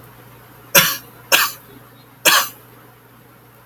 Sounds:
Cough